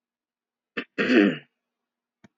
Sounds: Throat clearing